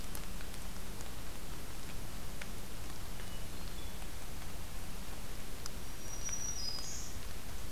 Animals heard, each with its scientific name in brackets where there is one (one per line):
Hermit Thrush (Catharus guttatus)
Black-throated Green Warbler (Setophaga virens)